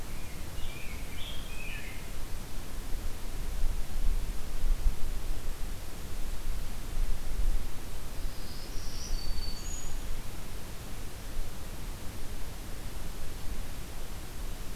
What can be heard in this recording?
Rose-breasted Grosbeak, Black-throated Green Warbler